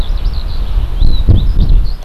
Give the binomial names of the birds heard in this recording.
Alauda arvensis